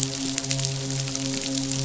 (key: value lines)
label: biophony, midshipman
recorder: SoundTrap 500